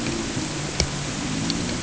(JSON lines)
{"label": "anthrophony, boat engine", "recorder": "HydroMoth"}